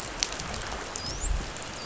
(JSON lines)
{"label": "biophony, dolphin", "recorder": "SoundTrap 500"}